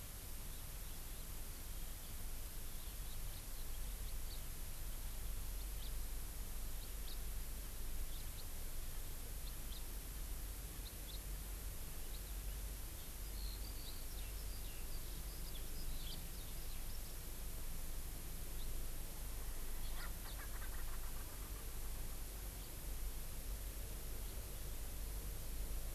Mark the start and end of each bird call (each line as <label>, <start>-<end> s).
House Finch (Haemorhous mexicanus), 5.8-5.9 s
House Finch (Haemorhous mexicanus), 7.0-7.2 s
House Finch (Haemorhous mexicanus), 8.1-8.2 s
House Finch (Haemorhous mexicanus), 9.7-9.8 s
House Finch (Haemorhous mexicanus), 11.0-11.2 s
Eurasian Skylark (Alauda arvensis), 12.9-17.1 s
House Finch (Haemorhous mexicanus), 16.0-16.2 s
House Finch (Haemorhous mexicanus), 19.9-20.3 s
Erckel's Francolin (Pternistis erckelii), 19.9-22.1 s